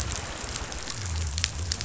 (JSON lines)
{"label": "biophony", "recorder": "SoundTrap 500"}